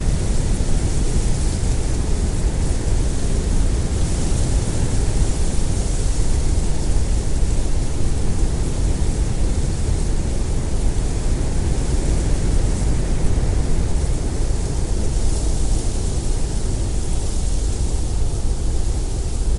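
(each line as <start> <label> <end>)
0.0 The sound of rustling leaves. 19.6
0.0 Wind is blowing. 19.6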